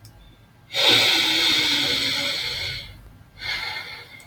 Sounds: Sigh